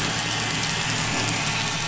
{"label": "anthrophony, boat engine", "recorder": "SoundTrap 500"}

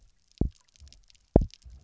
{"label": "biophony, double pulse", "recorder": "SoundTrap 300"}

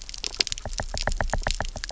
{"label": "biophony, knock", "recorder": "SoundTrap 300"}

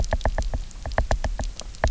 {"label": "biophony, knock", "recorder": "SoundTrap 300"}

